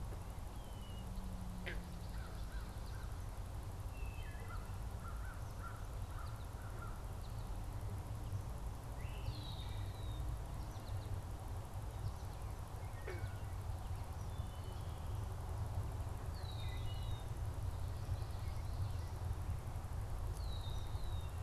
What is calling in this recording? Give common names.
Red-winged Blackbird, American Crow, Wood Thrush, American Goldfinch